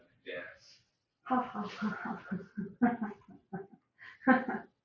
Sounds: Laughter